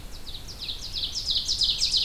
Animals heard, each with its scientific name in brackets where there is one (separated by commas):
Ovenbird (Seiurus aurocapilla), Red-eyed Vireo (Vireo olivaceus)